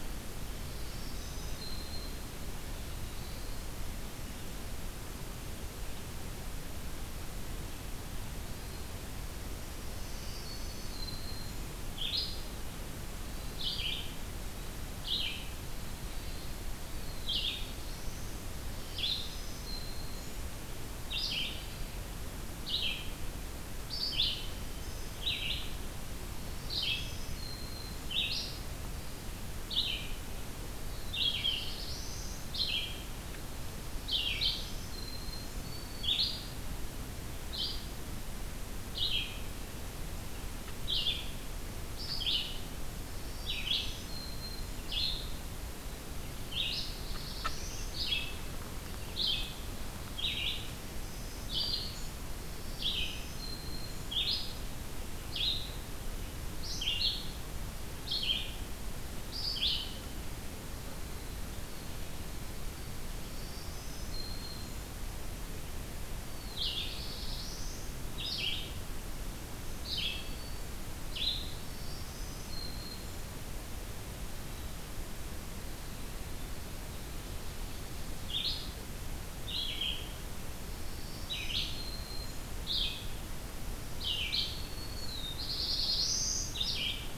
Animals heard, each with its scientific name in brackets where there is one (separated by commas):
Red-eyed Vireo (Vireo olivaceus), Black-throated Blue Warbler (Setophaga caerulescens), Black-throated Green Warbler (Setophaga virens)